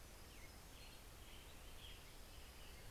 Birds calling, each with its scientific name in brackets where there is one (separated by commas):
Common Raven (Corvus corax), Hermit Warbler (Setophaga occidentalis), Western Tanager (Piranga ludoviciana)